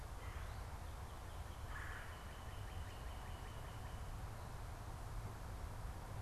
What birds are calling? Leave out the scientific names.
Red-bellied Woodpecker, Northern Cardinal